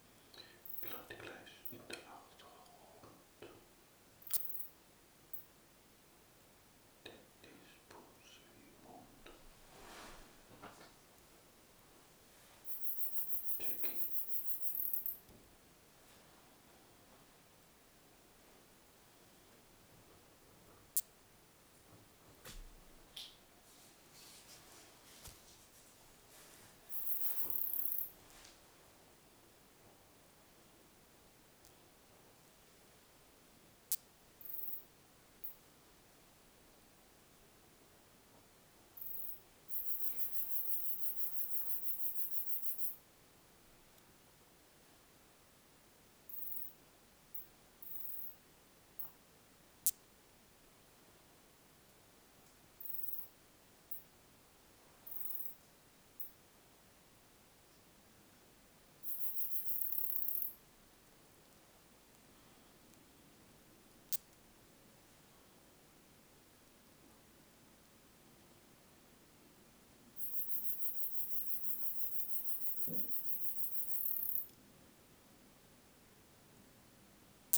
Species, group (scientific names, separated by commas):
Poecilimon zwicki, Orthoptera